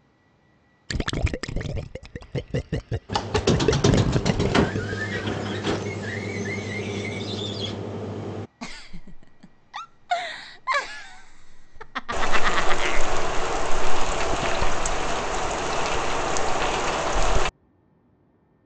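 At the start, you can hear gurgling. Meanwhile, about 3 seconds in, squeaking can be heard. Then, about 9 seconds in, someone giggles. While that goes on, about 12 seconds in, rain is audible. A soft background noise persists.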